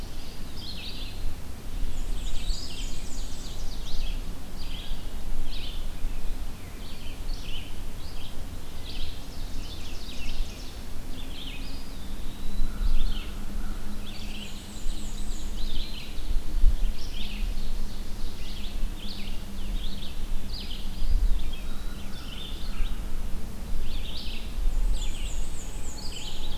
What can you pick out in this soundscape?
Red-eyed Vireo, Eastern Wood-Pewee, Black-and-white Warbler, Ovenbird, American Crow